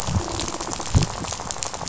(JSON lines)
{"label": "biophony, rattle", "recorder": "SoundTrap 500"}